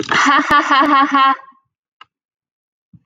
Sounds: Laughter